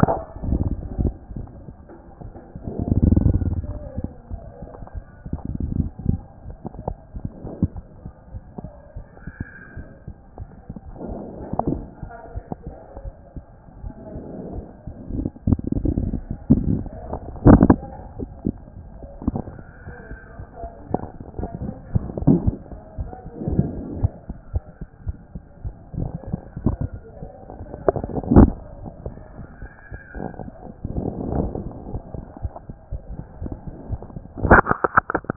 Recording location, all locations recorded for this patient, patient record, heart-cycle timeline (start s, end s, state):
aortic valve (AV)
aortic valve (AV)+pulmonary valve (PV)+tricuspid valve (TV)+mitral valve (MV)
#Age: Child
#Sex: Female
#Height: 133.0 cm
#Weight: 25.0 kg
#Pregnancy status: False
#Murmur: Absent
#Murmur locations: nan
#Most audible location: nan
#Systolic murmur timing: nan
#Systolic murmur shape: nan
#Systolic murmur grading: nan
#Systolic murmur pitch: nan
#Systolic murmur quality: nan
#Diastolic murmur timing: nan
#Diastolic murmur shape: nan
#Diastolic murmur grading: nan
#Diastolic murmur pitch: nan
#Diastolic murmur quality: nan
#Outcome: Abnormal
#Campaign: 2014 screening campaign
0.00	7.74	unannotated
7.74	7.82	S1
7.82	8.05	systole
8.05	8.12	S2
8.12	8.33	diastole
8.33	8.41	S1
8.41	8.64	systole
8.64	8.71	S2
8.71	8.96	diastole
8.96	9.03	S1
9.03	9.27	systole
9.27	9.34	S2
9.34	9.76	diastole
9.76	9.85	S1
9.85	10.06	systole
10.06	10.14	S2
10.14	10.38	diastole
10.38	10.45	S1
10.45	10.69	systole
10.69	10.76	S2
10.76	11.08	diastole
11.08	35.36	unannotated